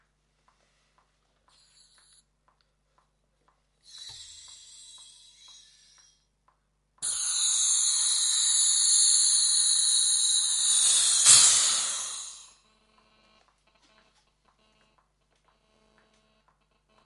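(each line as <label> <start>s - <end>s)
A clock is ticking consistently. 0.5s - 7.0s
Gas is being filled in repeating bursts indoors. 1.5s - 7.0s
The sound of gas releasing as it deflates. 7.0s - 12.4s
A loud burst of rapidly releasing gas. 11.3s - 11.8s
Rapid pulsating GSM buzzing sound. 12.5s - 15.2s
A continuous buzzing GSM noise indoors. 15.4s - 17.0s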